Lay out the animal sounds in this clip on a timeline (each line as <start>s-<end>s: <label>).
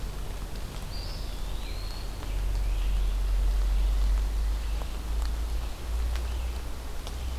0.0s-3.1s: Red-eyed Vireo (Vireo olivaceus)
0.8s-2.2s: Eastern Wood-Pewee (Contopus virens)